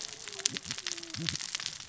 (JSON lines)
{"label": "biophony, cascading saw", "recorder": "SoundTrap 600 or HydroMoth"}